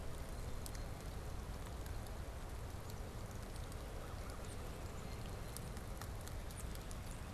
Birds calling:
Blue Jay (Cyanocitta cristata)

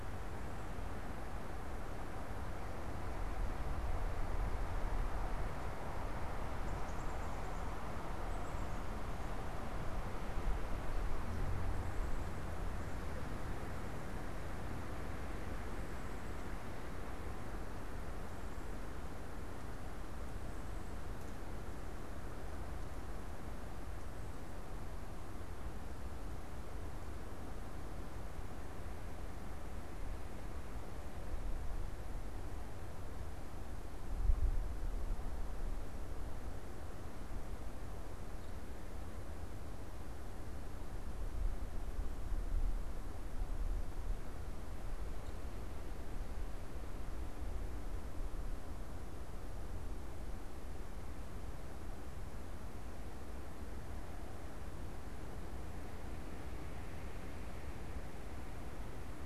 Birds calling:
Black-capped Chickadee (Poecile atricapillus)

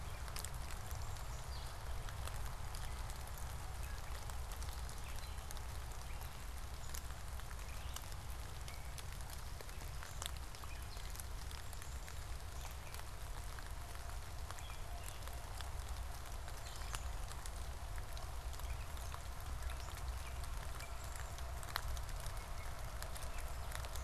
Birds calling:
Gray Catbird (Dumetella carolinensis)

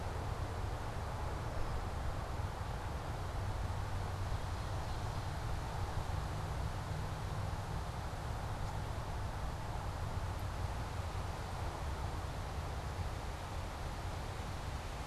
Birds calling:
Red-winged Blackbird (Agelaius phoeniceus), Ovenbird (Seiurus aurocapilla)

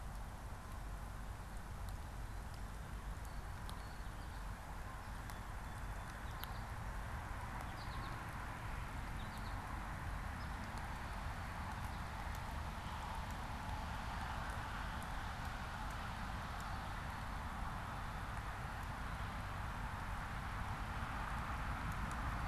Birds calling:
American Goldfinch (Spinus tristis)

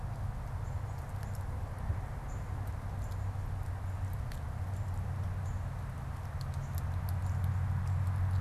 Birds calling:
Northern Cardinal (Cardinalis cardinalis)

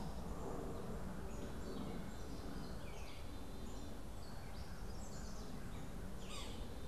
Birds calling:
Black-capped Chickadee (Poecile atricapillus), Gray Catbird (Dumetella carolinensis), Yellow-bellied Sapsucker (Sphyrapicus varius), Chestnut-sided Warbler (Setophaga pensylvanica)

